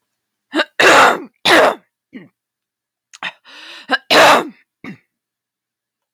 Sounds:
Throat clearing